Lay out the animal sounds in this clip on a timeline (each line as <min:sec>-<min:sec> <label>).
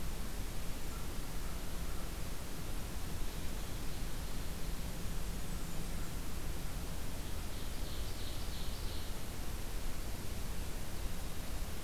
0:00.8-0:02.1 American Crow (Corvus brachyrhynchos)
0:03.5-0:05.0 Ovenbird (Seiurus aurocapilla)
0:04.9-0:06.3 Blackburnian Warbler (Setophaga fusca)
0:07.3-0:09.2 Ovenbird (Seiurus aurocapilla)